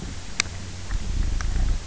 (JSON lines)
{"label": "biophony", "recorder": "SoundTrap 300"}